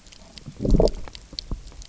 {"label": "biophony, low growl", "recorder": "SoundTrap 300"}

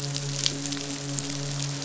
{"label": "biophony, midshipman", "recorder": "SoundTrap 500"}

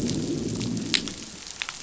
{"label": "biophony, growl", "recorder": "SoundTrap 500"}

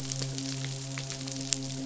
{"label": "biophony, midshipman", "recorder": "SoundTrap 500"}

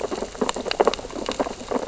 {"label": "biophony, sea urchins (Echinidae)", "recorder": "SoundTrap 600 or HydroMoth"}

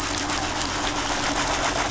{"label": "anthrophony, boat engine", "recorder": "SoundTrap 500"}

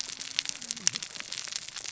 {"label": "biophony, cascading saw", "recorder": "SoundTrap 600 or HydroMoth"}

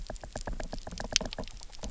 {"label": "biophony, knock", "recorder": "SoundTrap 300"}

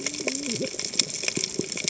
{"label": "biophony, cascading saw", "recorder": "HydroMoth"}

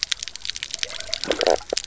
{"label": "biophony, stridulation", "recorder": "SoundTrap 300"}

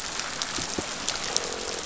{"label": "biophony", "recorder": "SoundTrap 500"}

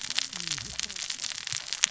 {"label": "biophony, cascading saw", "recorder": "SoundTrap 600 or HydroMoth"}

